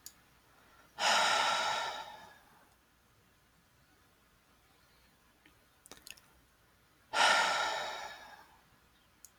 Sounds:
Sigh